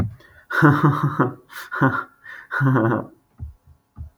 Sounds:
Laughter